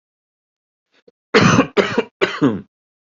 {"expert_labels": [{"quality": "good", "cough_type": "dry", "dyspnea": false, "wheezing": false, "stridor": false, "choking": false, "congestion": false, "nothing": true, "diagnosis": "upper respiratory tract infection", "severity": "mild"}], "age": 41, "gender": "male", "respiratory_condition": true, "fever_muscle_pain": false, "status": "symptomatic"}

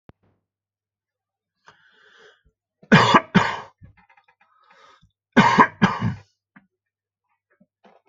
{"expert_labels": [{"quality": "ok", "cough_type": "unknown", "dyspnea": false, "wheezing": false, "stridor": false, "choking": false, "congestion": false, "nothing": true, "diagnosis": "lower respiratory tract infection", "severity": "mild"}], "age": 58, "gender": "male", "respiratory_condition": false, "fever_muscle_pain": true, "status": "symptomatic"}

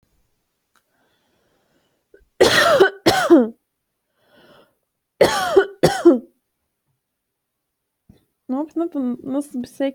{"expert_labels": [{"quality": "ok", "cough_type": "dry", "dyspnea": false, "wheezing": false, "stridor": false, "choking": false, "congestion": false, "nothing": true, "diagnosis": "healthy cough", "severity": "pseudocough/healthy cough"}], "age": 29, "gender": "female", "respiratory_condition": false, "fever_muscle_pain": false, "status": "healthy"}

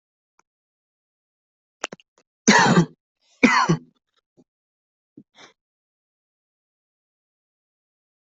{"expert_labels": [{"quality": "good", "cough_type": "dry", "dyspnea": false, "wheezing": false, "stridor": false, "choking": false, "congestion": false, "nothing": true, "diagnosis": "healthy cough", "severity": "pseudocough/healthy cough"}]}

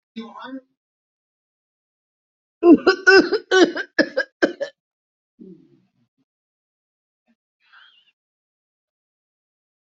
{"expert_labels": [{"quality": "good", "cough_type": "dry", "dyspnea": true, "wheezing": false, "stridor": true, "choking": false, "congestion": false, "nothing": false, "diagnosis": "obstructive lung disease", "severity": "severe"}], "age": 57, "gender": "female", "respiratory_condition": false, "fever_muscle_pain": false, "status": "healthy"}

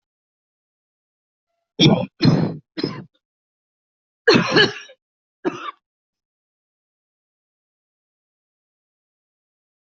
{"expert_labels": [{"quality": "poor", "cough_type": "unknown", "dyspnea": false, "wheezing": true, "stridor": false, "choking": false, "congestion": false, "nothing": false, "diagnosis": "COVID-19", "severity": "mild"}], "age": 44, "gender": "female", "respiratory_condition": false, "fever_muscle_pain": false, "status": "healthy"}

